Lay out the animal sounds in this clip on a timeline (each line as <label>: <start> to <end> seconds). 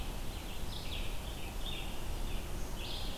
Red-eyed Vireo (Vireo olivaceus): 0.3 to 3.2 seconds